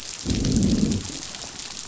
{"label": "biophony, growl", "recorder": "SoundTrap 500"}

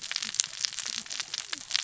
{"label": "biophony, cascading saw", "recorder": "SoundTrap 600 or HydroMoth"}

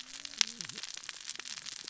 {"label": "biophony, cascading saw", "recorder": "SoundTrap 600 or HydroMoth"}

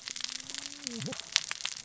{"label": "biophony, cascading saw", "recorder": "SoundTrap 600 or HydroMoth"}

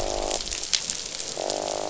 {"label": "biophony, croak", "recorder": "SoundTrap 500"}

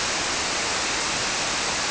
{"label": "biophony", "recorder": "SoundTrap 300"}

